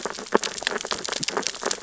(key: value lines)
label: biophony, sea urchins (Echinidae)
recorder: SoundTrap 600 or HydroMoth